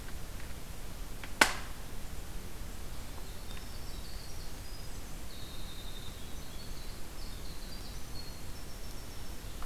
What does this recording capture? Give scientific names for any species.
Troglodytes hiemalis